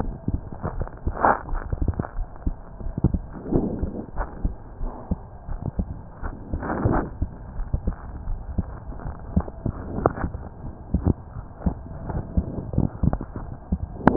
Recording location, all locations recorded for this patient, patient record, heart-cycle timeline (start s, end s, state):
aortic valve (AV)
aortic valve (AV)+pulmonary valve (PV)+tricuspid valve (TV)+mitral valve (MV)
#Age: Child
#Sex: Male
#Height: 138.0 cm
#Weight: 25.0 kg
#Pregnancy status: False
#Murmur: Absent
#Murmur locations: nan
#Most audible location: nan
#Systolic murmur timing: nan
#Systolic murmur shape: nan
#Systolic murmur grading: nan
#Systolic murmur pitch: nan
#Systolic murmur quality: nan
#Diastolic murmur timing: nan
#Diastolic murmur shape: nan
#Diastolic murmur grading: nan
#Diastolic murmur pitch: nan
#Diastolic murmur quality: nan
#Outcome: Normal
#Campaign: 2015 screening campaign
0.00	2.12	unannotated
2.12	2.28	S1
2.28	2.42	systole
2.42	2.56	S2
2.56	2.80	diastole
2.80	2.94	S1
2.94	3.09	systole
3.09	3.22	S2
3.22	3.49	diastole
3.49	3.63	S1
3.63	3.79	systole
3.79	3.94	S2
3.94	4.14	diastole
4.14	4.28	S1
4.28	4.40	systole
4.40	4.54	S2
4.54	4.78	diastole
4.78	4.94	S1
4.94	5.07	systole
5.07	5.20	S2
5.20	5.44	diastole
5.44	5.60	S1
5.60	5.74	systole
5.74	5.92	S2
5.92	6.19	diastole
6.19	6.34	S1
6.34	6.50	systole
6.50	6.62	S2
6.62	6.90	diastole
6.90	7.04	S1
7.04	7.17	systole
7.17	7.30	S2
7.30	7.54	diastole
7.54	7.68	S1
7.68	7.83	systole
7.83	7.96	S2
7.96	8.23	diastole
8.23	8.42	S1
8.42	8.54	systole
8.54	8.72	S2
8.72	9.02	diastole
9.02	9.16	S1
9.16	9.31	systole
9.31	9.44	S2
9.44	14.16	unannotated